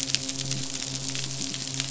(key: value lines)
label: biophony, midshipman
recorder: SoundTrap 500